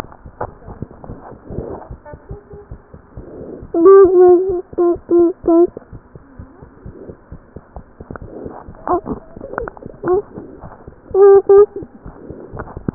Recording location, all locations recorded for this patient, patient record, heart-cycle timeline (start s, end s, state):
tricuspid valve (TV)
pulmonary valve (PV)+tricuspid valve (TV)+mitral valve (MV)
#Age: Child
#Sex: Male
#Height: nan
#Weight: nan
#Pregnancy status: False
#Murmur: Absent
#Murmur locations: nan
#Most audible location: nan
#Systolic murmur timing: nan
#Systolic murmur shape: nan
#Systolic murmur grading: nan
#Systolic murmur pitch: nan
#Systolic murmur quality: nan
#Diastolic murmur timing: nan
#Diastolic murmur shape: nan
#Diastolic murmur grading: nan
#Diastolic murmur pitch: nan
#Diastolic murmur quality: nan
#Outcome: Normal
#Campaign: 2015 screening campaign
0.00	1.90	unannotated
1.90	1.96	S1
1.96	2.11	systole
2.11	2.18	S2
2.18	2.29	diastole
2.29	2.37	S1
2.37	2.51	systole
2.51	2.58	S2
2.58	2.69	diastole
2.69	2.78	S1
2.78	2.92	systole
2.92	3.00	S2
3.00	3.15	diastole
3.15	3.23	S1
3.23	3.39	systole
3.39	3.46	S2
3.46	3.61	diastole
3.61	3.69	S1
3.69	5.75	unannotated
5.75	5.80	S2
5.80	5.91	diastole
5.91	5.99	S1
5.99	6.13	systole
6.13	6.19	S2
6.19	6.36	diastole
6.36	6.46	S1
6.46	6.60	systole
6.60	6.67	S2
6.67	6.84	diastole
6.84	6.91	S1
6.91	7.06	systole
7.06	7.13	S2
7.13	7.30	diastole
7.30	7.38	S1
7.38	7.53	systole
7.53	7.60	S2
7.60	7.74	diastole
7.74	7.82	S1
7.82	7.98	systole
7.98	8.02	S2
8.02	12.94	unannotated